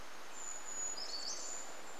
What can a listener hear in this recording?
Brown Creeper song, Chestnut-backed Chickadee call